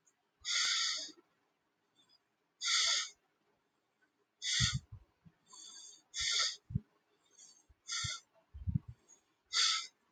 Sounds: Sigh